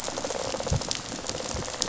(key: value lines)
label: biophony, rattle response
recorder: SoundTrap 500